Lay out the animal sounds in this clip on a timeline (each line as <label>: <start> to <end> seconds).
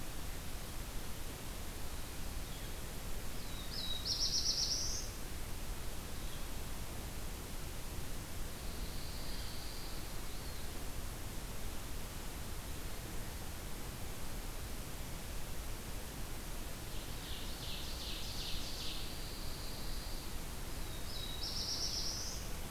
Black-throated Blue Warbler (Setophaga caerulescens): 3.2 to 5.3 seconds
Pine Warbler (Setophaga pinus): 8.3 to 10.5 seconds
Ovenbird (Seiurus aurocapilla): 16.7 to 19.1 seconds
Pine Warbler (Setophaga pinus): 18.9 to 20.4 seconds
Black-throated Blue Warbler (Setophaga caerulescens): 20.6 to 22.7 seconds